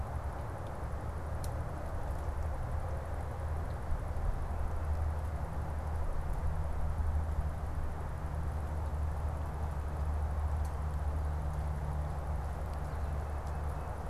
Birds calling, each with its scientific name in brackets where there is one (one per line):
Tufted Titmouse (Baeolophus bicolor)